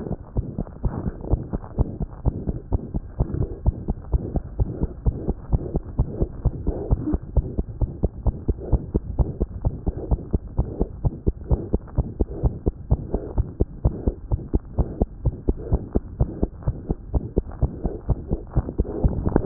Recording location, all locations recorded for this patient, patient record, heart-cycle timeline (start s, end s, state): tricuspid valve (TV)
aortic valve (AV)+pulmonary valve (PV)+tricuspid valve (TV)+mitral valve (MV)
#Age: Infant
#Sex: Female
#Height: 64.0 cm
#Weight: 6.0 kg
#Pregnancy status: False
#Murmur: Present
#Murmur locations: aortic valve (AV)+mitral valve (MV)+pulmonary valve (PV)+tricuspid valve (TV)
#Most audible location: tricuspid valve (TV)
#Systolic murmur timing: Holosystolic
#Systolic murmur shape: Plateau
#Systolic murmur grading: II/VI
#Systolic murmur pitch: Medium
#Systolic murmur quality: Blowing
#Diastolic murmur timing: nan
#Diastolic murmur shape: nan
#Diastolic murmur grading: nan
#Diastolic murmur pitch: nan
#Diastolic murmur quality: nan
#Outcome: Abnormal
#Campaign: 2015 screening campaign
0.00	0.16	unannotated
0.16	0.36	diastole
0.36	0.46	S1
0.46	0.60	systole
0.60	0.66	S2
0.66	0.84	diastole
0.84	0.94	S1
0.94	1.08	systole
1.08	1.14	S2
1.14	1.29	diastole
1.29	1.38	S1
1.38	1.52	systole
1.52	1.60	S2
1.60	1.78	diastole
1.78	1.88	S1
1.88	1.99	systole
1.99	2.08	S2
2.08	2.25	diastole
2.25	2.33	S1
2.33	2.47	systole
2.47	2.54	S2
2.54	2.72	diastole
2.72	2.82	S1
2.82	2.94	systole
2.94	3.02	S2
3.02	3.20	diastole
3.20	3.28	S1
3.28	3.42	systole
3.42	3.50	S2
3.50	3.66	diastole
3.66	3.76	S1
3.76	3.87	systole
3.87	3.96	S2
3.96	4.12	diastole
4.12	4.22	S1
4.22	4.34	systole
4.34	4.44	S2
4.44	4.58	diastole
4.58	4.70	S1
4.70	4.81	systole
4.81	4.90	S2
4.90	5.06	diastole
5.06	5.16	S1
5.16	5.28	systole
5.28	5.36	S2
5.36	5.50	diastole
5.50	5.62	S1
5.62	5.73	systole
5.73	5.82	S2
5.82	5.97	diastole
5.97	6.04	S1
6.04	6.20	systole
6.20	6.28	S2
6.28	6.43	diastole
6.43	6.52	S1
6.52	6.65	systole
6.65	6.73	S2
6.73	6.90	diastole
6.90	6.98	S1
6.98	7.11	systole
7.11	7.18	S2
7.18	7.34	diastole
7.34	7.44	S1
7.44	7.56	systole
7.56	7.64	S2
7.64	7.80	diastole
7.80	7.88	S1
7.88	8.02	systole
8.02	8.08	S2
8.08	8.24	diastole
8.24	8.34	S1
8.34	8.46	systole
8.46	8.56	S2
8.56	8.72	diastole
8.72	8.82	S1
8.82	8.94	systole
8.94	9.00	S2
9.00	9.18	diastole
9.18	9.28	S1
9.28	9.40	systole
9.40	9.46	S2
9.46	9.62	diastole
9.62	9.72	S1
9.72	9.86	systole
9.86	9.94	S2
9.94	10.10	diastole
10.10	10.20	S1
10.20	10.32	systole
10.32	10.40	S2
10.40	10.56	diastole
10.56	10.66	S1
10.66	10.78	systole
10.78	10.87	S2
10.87	11.04	diastole
11.04	11.14	S1
11.14	11.26	systole
11.26	11.34	S2
11.34	11.50	diastole
11.50	11.60	S1
11.60	11.72	systole
11.72	11.80	S2
11.80	11.96	diastole
11.96	12.06	S1
12.06	12.20	systole
12.20	12.26	S2
12.26	12.44	diastole
12.44	12.52	S1
12.52	12.66	systole
12.66	12.74	S2
12.74	12.90	diastole
12.90	12.98	S1
12.98	13.12	systole
13.12	13.20	S2
13.20	13.36	diastole
13.36	13.46	S1
13.46	13.58	systole
13.58	13.66	S2
13.66	13.84	diastole
13.84	13.94	S1
13.94	14.06	systole
14.06	14.14	S2
14.14	14.30	diastole
14.30	14.40	S1
14.40	14.52	systole
14.52	14.60	S2
14.60	14.78	diastole
14.78	14.88	S1
14.88	15.00	systole
15.00	15.08	S2
15.08	15.24	diastole
15.24	15.34	S1
15.34	15.48	systole
15.48	15.54	S2
15.54	15.72	diastole
15.72	15.82	S1
15.82	15.93	systole
15.93	16.02	S2
16.02	16.20	diastole
16.20	19.46	unannotated